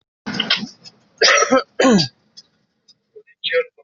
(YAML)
expert_labels:
- quality: poor
  cough_type: unknown
  dyspnea: false
  wheezing: false
  stridor: false
  choking: false
  congestion: false
  nothing: true
  diagnosis: healthy cough
  severity: pseudocough/healthy cough
age: 27
gender: female
respiratory_condition: false
fever_muscle_pain: false
status: COVID-19